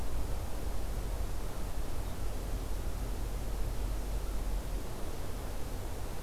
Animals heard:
forest ambience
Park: Acadia National Park